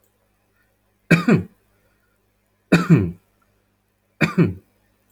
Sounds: Cough